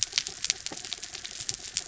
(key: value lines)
label: anthrophony, mechanical
recorder: SoundTrap 300